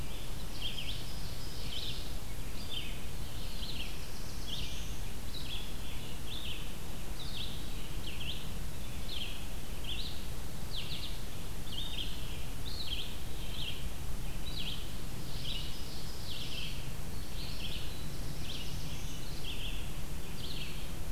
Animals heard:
Black-throated Blue Warbler (Setophaga caerulescens), Ovenbird (Seiurus aurocapilla), Red-eyed Vireo (Vireo olivaceus)

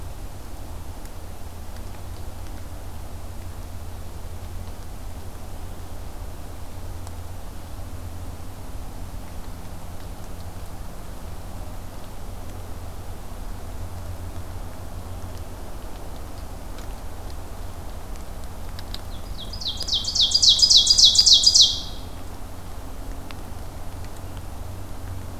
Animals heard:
Ovenbird (Seiurus aurocapilla)

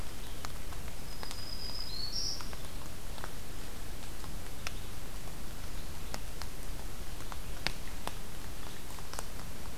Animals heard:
Black-throated Green Warbler (Setophaga virens), Red-eyed Vireo (Vireo olivaceus)

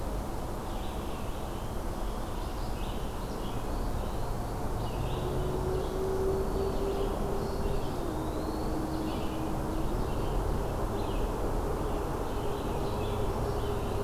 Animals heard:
Scarlet Tanager (Piranga olivacea), Eastern Wood-Pewee (Contopus virens), Red-eyed Vireo (Vireo olivaceus), Black-throated Green Warbler (Setophaga virens)

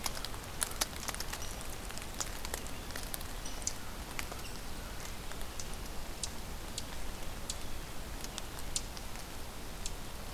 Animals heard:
American Crow (Corvus brachyrhynchos)

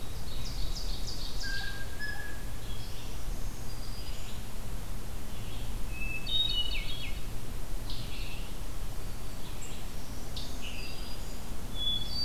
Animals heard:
Black-throated Green Warbler (Setophaga virens), Scarlet Tanager (Piranga olivacea), Blue Jay (Cyanocitta cristata), Ovenbird (Seiurus aurocapilla), Hermit Thrush (Catharus guttatus), Red-eyed Vireo (Vireo olivaceus)

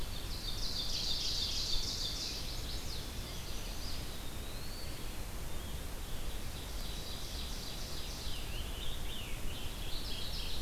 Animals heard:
Ovenbird (Seiurus aurocapilla), Eastern Wood-Pewee (Contopus virens), Scarlet Tanager (Piranga olivacea), Mourning Warbler (Geothlypis philadelphia), Chestnut-sided Warbler (Setophaga pensylvanica), Red-eyed Vireo (Vireo olivaceus)

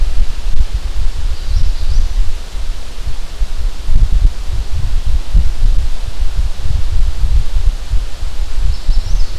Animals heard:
Magnolia Warbler (Setophaga magnolia)

